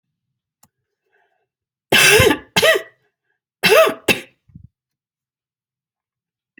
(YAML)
expert_labels:
- quality: ok
  cough_type: dry
  dyspnea: false
  wheezing: false
  stridor: false
  choking: false
  congestion: false
  nothing: false
  diagnosis: COVID-19
  severity: mild
age: 64
gender: female
respiratory_condition: true
fever_muscle_pain: true
status: symptomatic